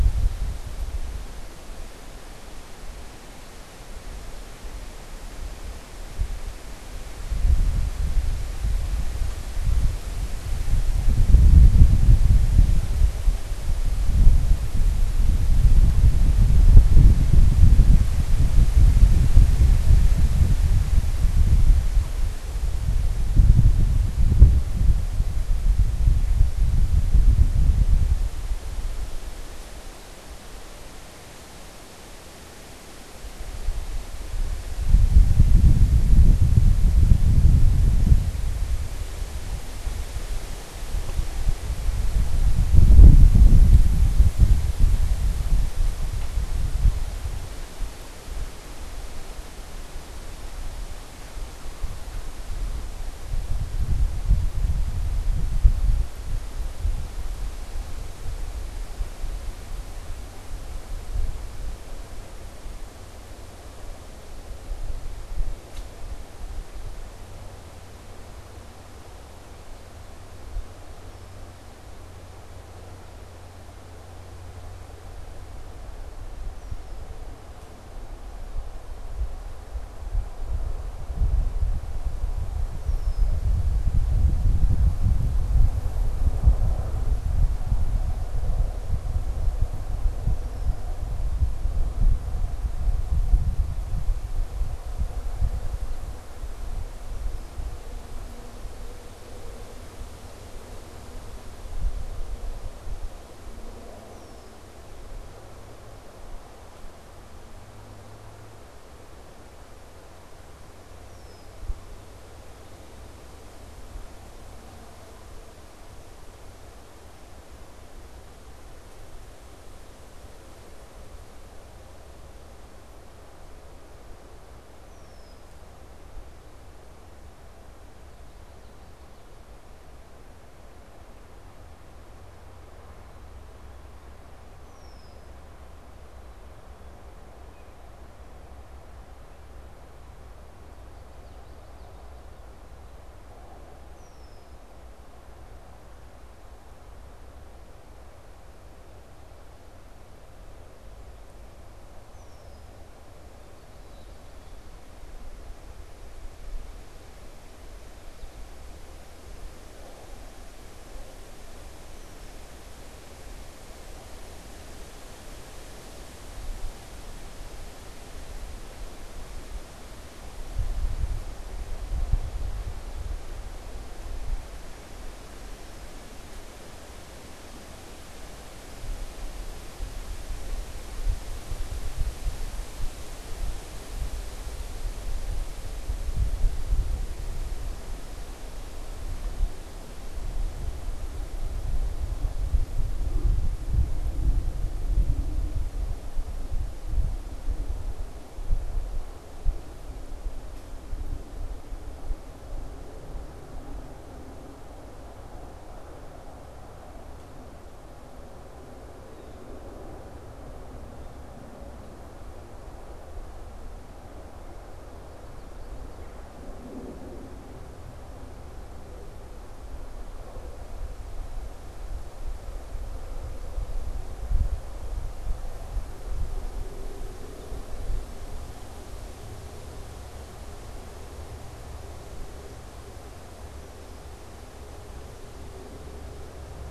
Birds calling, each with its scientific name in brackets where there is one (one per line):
Common Yellowthroat (Geothlypis trichas)
Red-winged Blackbird (Agelaius phoeniceus)